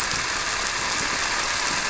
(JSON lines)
{"label": "anthrophony, boat engine", "recorder": "SoundTrap 300"}